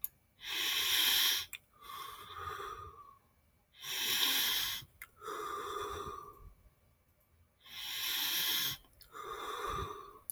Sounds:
Sigh